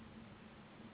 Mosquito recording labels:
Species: Anopheles gambiae s.s.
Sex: female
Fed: unfed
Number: one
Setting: insect culture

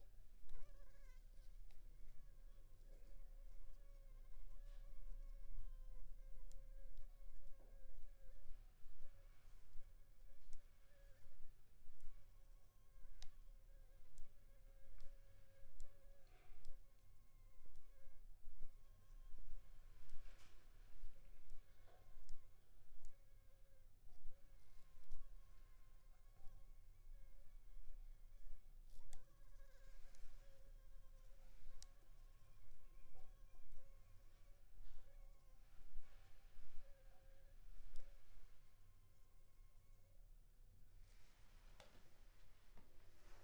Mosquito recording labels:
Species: Anopheles funestus s.s.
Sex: female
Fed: unfed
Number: one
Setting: cup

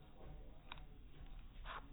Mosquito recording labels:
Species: no mosquito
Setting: cup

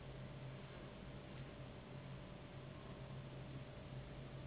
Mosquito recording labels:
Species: Anopheles gambiae s.s.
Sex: female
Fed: unfed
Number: one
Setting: insect culture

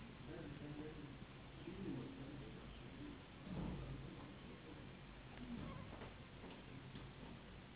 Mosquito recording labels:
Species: Anopheles gambiae s.s.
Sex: female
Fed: unfed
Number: one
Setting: insect culture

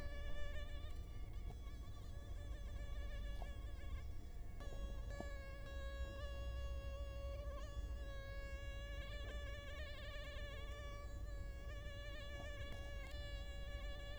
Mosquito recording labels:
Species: Culex quinquefasciatus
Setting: cup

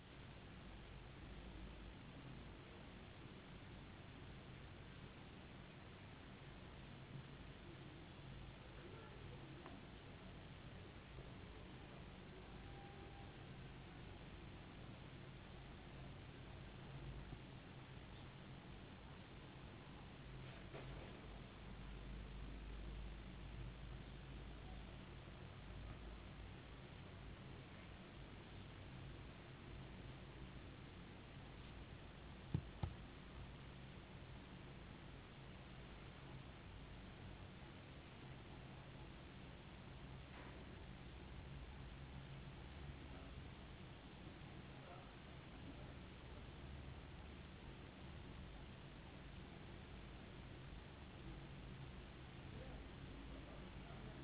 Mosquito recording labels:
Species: no mosquito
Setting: insect culture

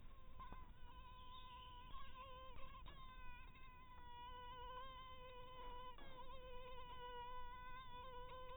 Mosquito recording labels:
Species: mosquito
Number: one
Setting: cup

